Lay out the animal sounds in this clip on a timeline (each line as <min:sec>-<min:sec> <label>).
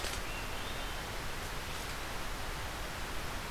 0:00.0-0:01.1 Hermit Thrush (Catharus guttatus)